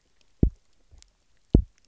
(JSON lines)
{"label": "biophony, double pulse", "recorder": "SoundTrap 300"}